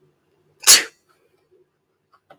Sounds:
Sneeze